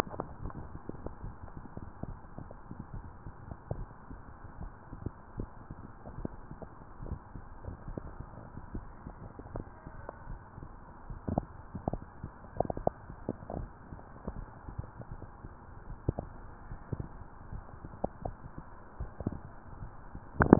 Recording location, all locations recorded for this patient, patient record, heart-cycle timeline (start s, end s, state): mitral valve (MV)
aortic valve (AV)+pulmonary valve (PV)+tricuspid valve (TV)+mitral valve (MV)
#Age: nan
#Sex: Female
#Height: nan
#Weight: nan
#Pregnancy status: True
#Murmur: Absent
#Murmur locations: nan
#Most audible location: nan
#Systolic murmur timing: nan
#Systolic murmur shape: nan
#Systolic murmur grading: nan
#Systolic murmur pitch: nan
#Systolic murmur quality: nan
#Diastolic murmur timing: nan
#Diastolic murmur shape: nan
#Diastolic murmur grading: nan
#Diastolic murmur pitch: nan
#Diastolic murmur quality: nan
#Outcome: Normal
#Campaign: 2015 screening campaign
0.00	8.30	unannotated
8.30	8.72	diastole
8.72	8.86	S1
8.86	9.06	systole
9.06	9.16	S2
9.16	9.52	diastole
9.52	9.64	S1
9.64	9.80	systole
9.80	9.92	S2
9.92	10.28	diastole
10.28	10.42	S1
10.42	10.58	systole
10.58	10.68	S2
10.68	11.08	diastole
11.08	11.20	S1
11.20	11.32	systole
11.32	11.48	S2
11.48	11.71	diastole
11.71	12.02	S1
12.02	12.22	systole
12.22	12.32	S2
12.32	12.71	diastole
12.71	12.94	S1
12.94	13.10	systole
13.10	13.27	S2
13.27	13.54	diastole
13.54	13.70	S1
13.70	13.87	systole
13.87	14.00	S2
14.00	14.32	diastole
14.32	14.48	S1
14.48	14.66	systole
14.66	14.76	S2
14.76	15.07	diastole
15.07	15.22	S1
15.22	15.40	systole
15.40	15.52	S2
15.52	15.88	diastole
15.88	16.00	S1
16.00	16.16	systole
16.16	16.30	S2
16.30	16.68	diastole
16.68	16.80	S1
16.80	17.00	systole
17.00	17.12	S2
17.12	17.50	diastole
17.50	17.64	S1
17.64	17.84	systole
17.84	17.92	S2
17.92	18.24	diastole
18.24	18.38	S1
18.38	18.54	systole
18.54	18.64	S2
18.64	18.96	diastole
18.96	19.12	S1
19.12	19.28	systole
19.28	19.42	S2
19.42	19.78	diastole
19.78	19.90	S1
19.90	20.10	systole
20.10	20.23	S2
20.23	20.42	diastole
20.42	20.59	unannotated